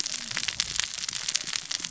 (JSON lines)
{"label": "biophony, cascading saw", "recorder": "SoundTrap 600 or HydroMoth"}